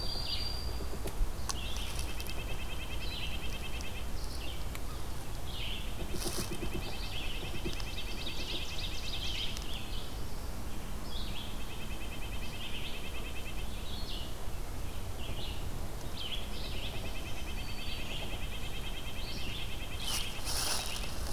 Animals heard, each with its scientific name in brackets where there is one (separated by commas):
Red-breasted Nuthatch (Sitta canadensis), Ovenbird (Seiurus aurocapilla), Broad-winged Hawk (Buteo platypterus), Red-eyed Vireo (Vireo olivaceus)